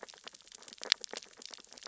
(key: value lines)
label: biophony, sea urchins (Echinidae)
recorder: SoundTrap 600 or HydroMoth